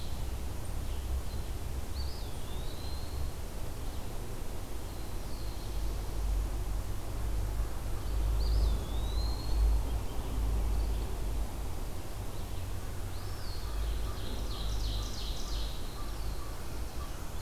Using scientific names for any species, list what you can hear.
Contopus virens, Setophaga caerulescens, Seiurus aurocapilla